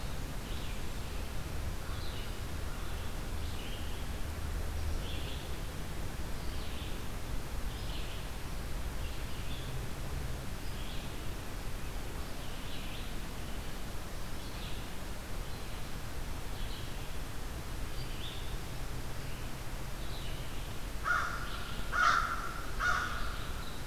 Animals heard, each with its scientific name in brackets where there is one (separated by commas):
Red-eyed Vireo (Vireo olivaceus), American Crow (Corvus brachyrhynchos)